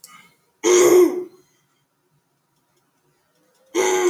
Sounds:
Throat clearing